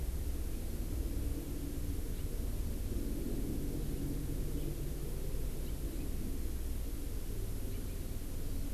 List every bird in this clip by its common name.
House Finch